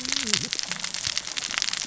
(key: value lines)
label: biophony, cascading saw
recorder: SoundTrap 600 or HydroMoth